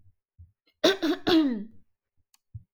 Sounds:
Throat clearing